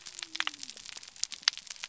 {"label": "biophony", "recorder": "SoundTrap 300"}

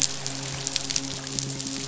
{"label": "biophony, midshipman", "recorder": "SoundTrap 500"}
{"label": "biophony", "recorder": "SoundTrap 500"}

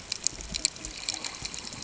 {"label": "ambient", "recorder": "HydroMoth"}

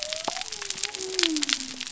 {"label": "biophony", "recorder": "SoundTrap 300"}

